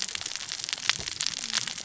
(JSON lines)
{"label": "biophony, cascading saw", "recorder": "SoundTrap 600 or HydroMoth"}